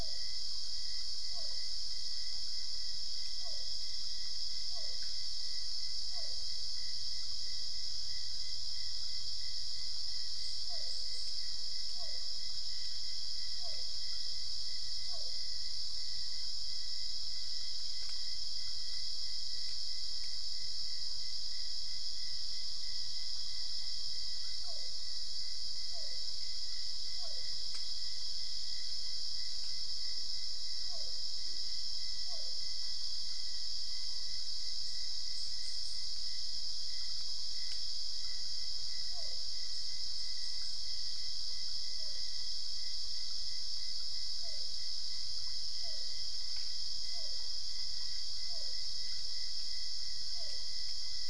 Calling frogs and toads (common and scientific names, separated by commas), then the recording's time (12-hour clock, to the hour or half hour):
Physalaemus cuvieri
3am